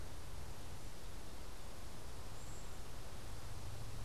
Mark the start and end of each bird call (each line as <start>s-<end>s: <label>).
2.4s-2.9s: unidentified bird